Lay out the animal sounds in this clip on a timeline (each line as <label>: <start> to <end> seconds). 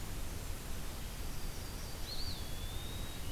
Yellow-rumped Warbler (Setophaga coronata): 1.0 to 2.2 seconds
Eastern Wood-Pewee (Contopus virens): 1.9 to 3.1 seconds